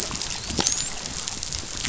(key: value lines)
label: biophony, dolphin
recorder: SoundTrap 500